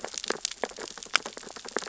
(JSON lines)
{"label": "biophony, sea urchins (Echinidae)", "recorder": "SoundTrap 600 or HydroMoth"}